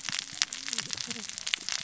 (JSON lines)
{"label": "biophony, cascading saw", "recorder": "SoundTrap 600 or HydroMoth"}